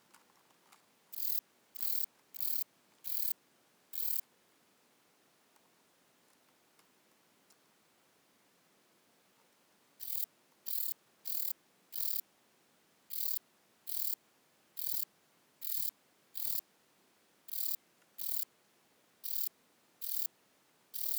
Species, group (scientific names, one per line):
Rhacocleis buchichii
Orthoptera